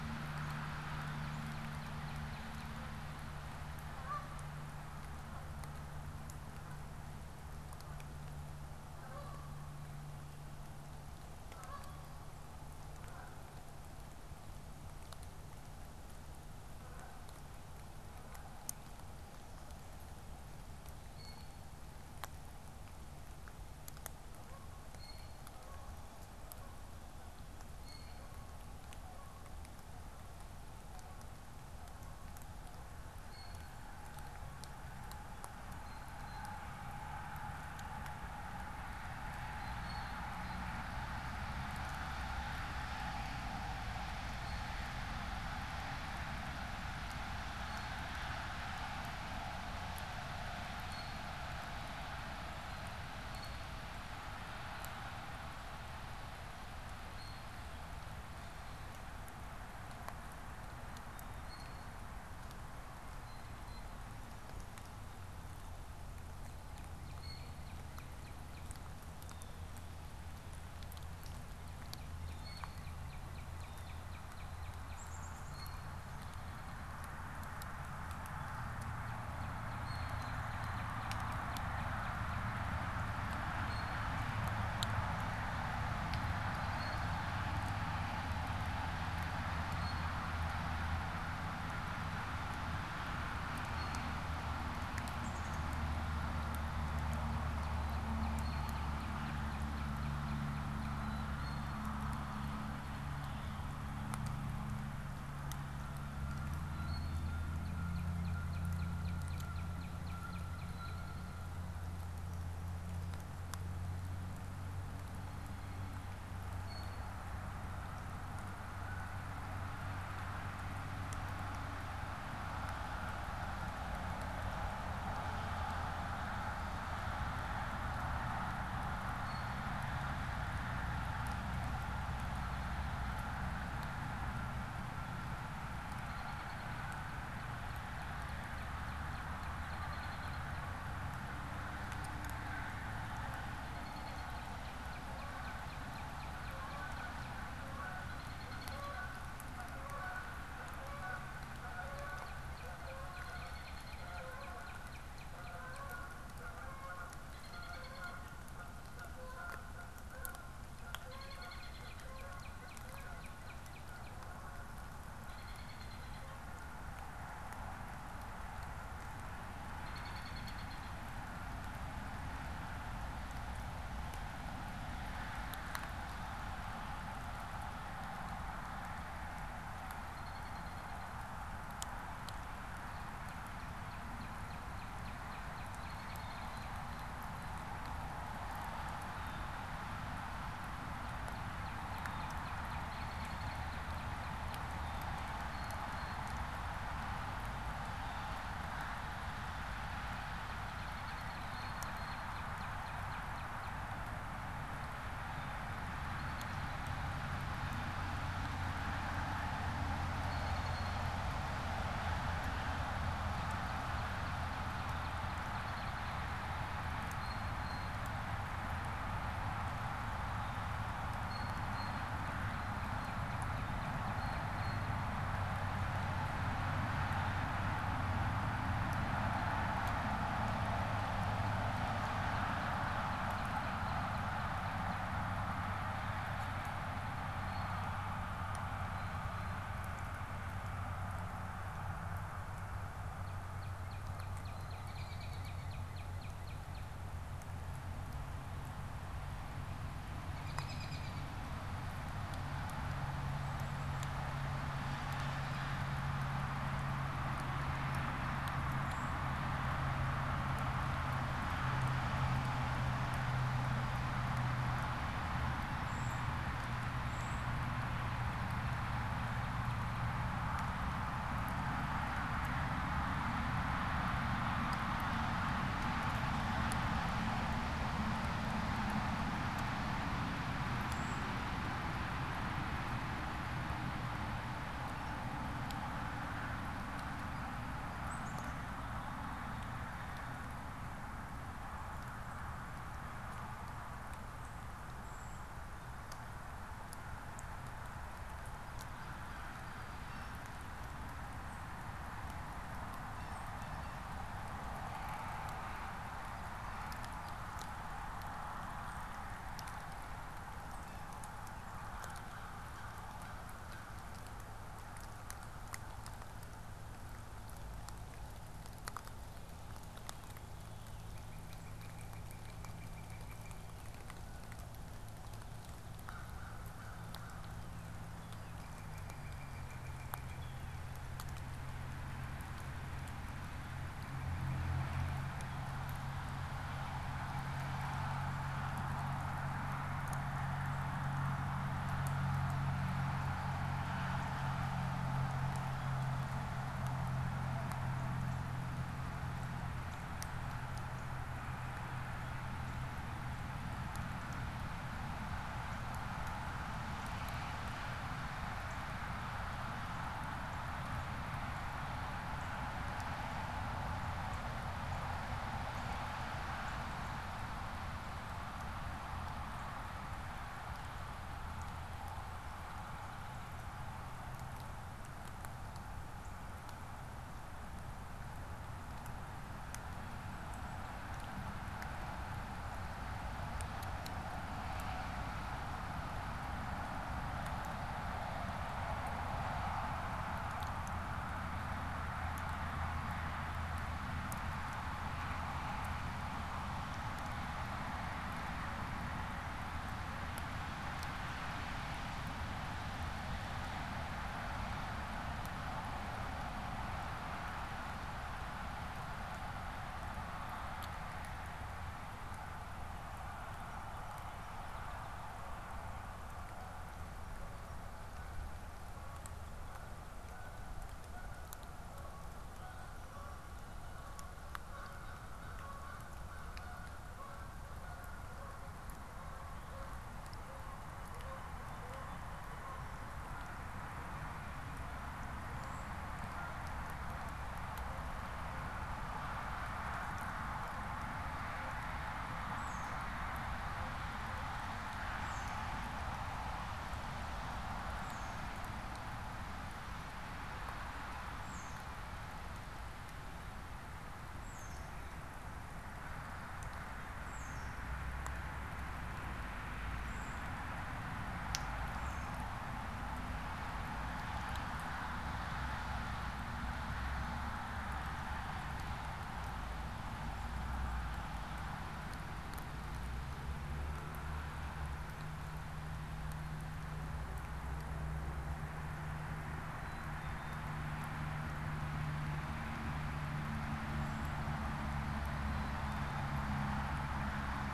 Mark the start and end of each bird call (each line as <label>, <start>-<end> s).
Northern Cardinal (Cardinalis cardinalis), 0.0-3.0 s
Canada Goose (Branta canadensis), 3.8-18.6 s
Blue Jay (Cyanocitta cristata), 21.0-36.7 s
Blue Jay (Cyanocitta cristata), 39.1-64.0 s
Northern Cardinal (Cardinalis cardinalis), 66.6-69.0 s
Blue Jay (Cyanocitta cristata), 67.1-67.6 s
Blue Jay (Cyanocitta cristata), 69.2-69.7 s
Northern Cardinal (Cardinalis cardinalis), 71.4-75.2 s
Blue Jay (Cyanocitta cristata), 72.2-74.1 s
Black-capped Chickadee (Poecile atricapillus), 74.8-75.7 s
Blue Jay (Cyanocitta cristata), 75.4-75.9 s
Blue Jay (Cyanocitta cristata), 79.8-80.7 s
Blue Jay (Cyanocitta cristata), 83.5-84.3 s
Blue Jay (Cyanocitta cristata), 86.6-87.3 s
Blue Jay (Cyanocitta cristata), 89.7-90.3 s
Blue Jay (Cyanocitta cristata), 93.3-94.3 s
Black-capped Chickadee (Poecile atricapillus), 95.0-95.6 s
Northern Cardinal (Cardinalis cardinalis), 97.0-102.0 s
Blue Jay (Cyanocitta cristata), 98.3-98.9 s
Blue Jay (Cyanocitta cristata), 100.9-101.8 s
Canada Goose (Branta canadensis), 105.6-112.0 s
Blue Jay (Cyanocitta cristata), 106.7-107.2 s
Northern Cardinal (Cardinalis cardinalis), 107.4-111.0 s
American Robin (Turdus migratorius), 110.5-111.4 s
Blue Jay (Cyanocitta cristata), 110.6-111.1 s
Blue Jay (Cyanocitta cristata), 116.5-117.1 s
Blue Jay (Cyanocitta cristata), 129.1-129.7 s
American Robin (Turdus migratorius), 132.2-133.2 s
American Robin (Turdus migratorius), 135.8-136.8 s
Northern Cardinal (Cardinalis cardinalis), 136.6-140.5 s
American Robin (Turdus migratorius), 139.5-140.6 s
American Robin (Turdus migratorius), 143.5-144.4 s
Northern Cardinal (Cardinalis cardinalis), 144.2-147.4 s
Canada Goose (Branta canadensis), 145.1-169.0 s
American Robin (Turdus migratorius), 147.9-149.2 s
Northern Cardinal (Cardinalis cardinalis), 151.8-156.3 s
American Robin (Turdus migratorius), 153.0-154.3 s
American Robin (Turdus migratorius), 157.2-158.2 s
American Robin (Turdus migratorius), 161.0-161.9 s
Northern Cardinal (Cardinalis cardinalis), 161.1-164.2 s
American Robin (Turdus migratorius), 165.1-166.4 s
American Robin (Turdus migratorius), 169.6-171.2 s
American Robin (Turdus migratorius), 179.9-181.1 s
Northern Cardinal (Cardinalis cardinalis), 182.8-186.9 s
American Robin (Turdus migratorius), 185.6-186.6 s
Blue Jay (Cyanocitta cristata), 186.7-187.6 s
Blue Jay (Cyanocitta cristata), 189.0-189.6 s
Northern Cardinal (Cardinalis cardinalis), 190.7-194.7 s
American Robin (Turdus migratorius), 192.8-194.0 s
Blue Jay (Cyanocitta cristata), 194.8-196.4 s
Northern Cardinal (Cardinalis cardinalis), 199.8-203.9 s
American Robin (Turdus migratorius), 200.6-201.7 s
Blue Jay (Cyanocitta cristata), 201.5-202.3 s
Blue Jay (Cyanocitta cristata), 205.2-205.8 s
American Robin (Turdus migratorius), 206.1-206.9 s
Blue Jay (Cyanocitta cristata), 210.1-211.2 s
Northern Cardinal (Cardinalis cardinalis), 213.0-216.5 s
American Robin (Turdus migratorius), 215.4-216.4 s
Blue Jay (Cyanocitta cristata), 217.0-218.1 s
Blue Jay (Cyanocitta cristata), 220.3-225.1 s
Northern Cardinal (Cardinalis cardinalis), 221.7-225.0 s
Blue Jay (Cyanocitta cristata), 228.8-229.6 s
Northern Cardinal (Cardinalis cardinalis), 230.9-235.1 s
American Robin (Turdus migratorius), 236.7-237.6 s
Blue Jay (Cyanocitta cristata), 237.3-239.7 s
Northern Cardinal (Cardinalis cardinalis), 243.1-246.9 s
American Robin (Turdus migratorius), 244.4-245.8 s
American Robin (Turdus migratorius), 250.2-251.4 s
Brown Creeper (Certhia americana), 258.7-259.3 s
Brown Creeper (Certhia americana), 265.7-267.5 s
Brown Creeper (Certhia americana), 280.7-281.3 s
Black-capped Chickadee (Poecile atricapillus), 287.9-290.7 s
Brown Creeper (Certhia americana), 294.9-295.5 s
Song Sparrow (Melospiza melodia), 298.8-300.6 s
Blue Jay (Cyanocitta cristata), 300.0-300.5 s
Blue Jay (Cyanocitta cristata), 303.1-304.1 s
Blue Jay (Cyanocitta cristata), 310.8-311.2 s
American Crow (Corvus brachyrhynchos), 312.2-314.0 s
Northern Cardinal (Cardinalis cardinalis), 319.8-323.7 s
American Crow (Corvus brachyrhynchos), 325.9-327.7 s
Northern Cardinal (Cardinalis cardinalis), 327.5-331.0 s
Song Sparrow (Melospiza melodia), 413.2-415.2 s
Canada Goose (Branta canadensis), 416.3-436.7 s
Tufted Titmouse (Baeolophus bicolor), 442.1-462.5 s
Black-capped Chickadee (Poecile atricapillus), 479.7-480.7 s
Black-capped Chickadee (Poecile atricapillus), 485.4-486.3 s